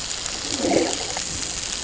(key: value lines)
label: ambient
recorder: HydroMoth